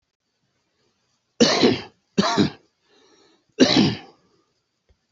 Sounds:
Cough